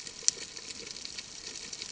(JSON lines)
{"label": "ambient", "recorder": "HydroMoth"}